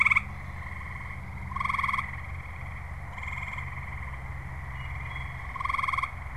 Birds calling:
Wood Thrush (Hylocichla mustelina)

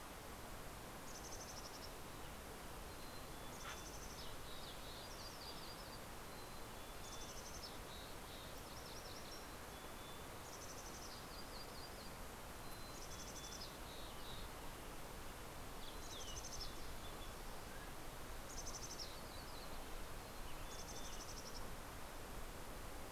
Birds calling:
Western Tanager (Piranga ludoviciana)
Mountain Quail (Oreortyx pictus)
Dark-eyed Junco (Junco hyemalis)
Mountain Chickadee (Poecile gambeli)
MacGillivray's Warbler (Geothlypis tolmiei)

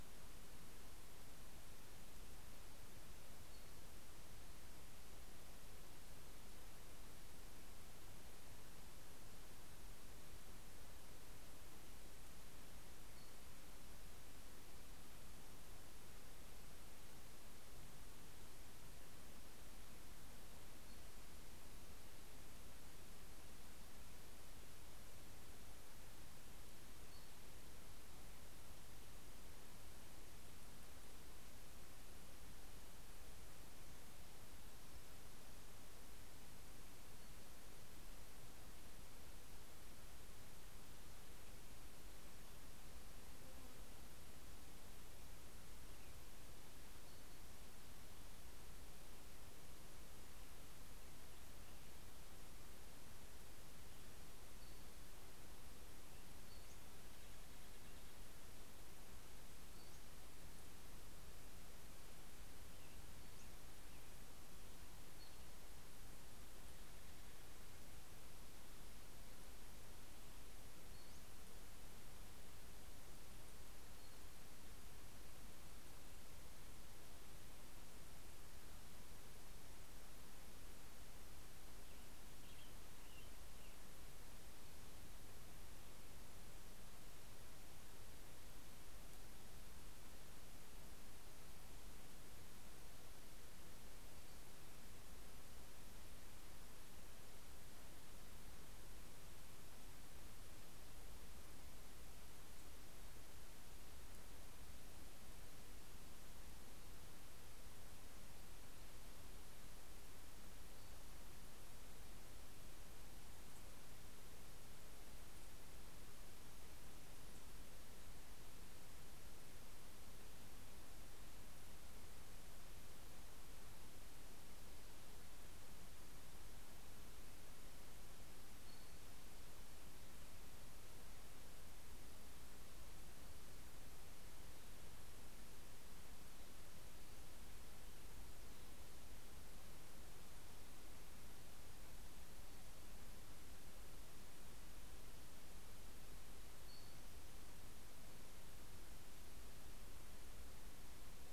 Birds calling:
Cassin's Vireo (Vireo cassinii)
American Robin (Turdus migratorius)

